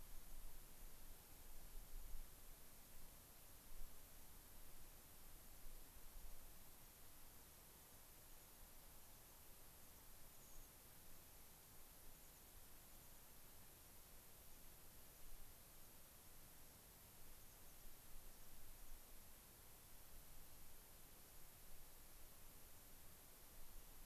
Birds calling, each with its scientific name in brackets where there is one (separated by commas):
American Pipit (Anthus rubescens)